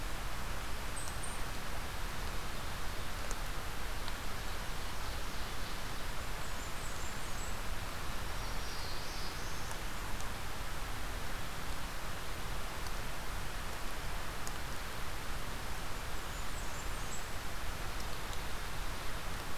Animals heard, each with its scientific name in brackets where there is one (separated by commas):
Eastern Chipmunk (Tamias striatus), Black-throated Blue Warbler (Setophaga caerulescens), Blackburnian Warbler (Setophaga fusca)